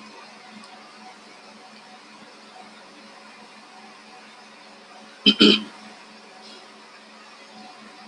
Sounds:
Throat clearing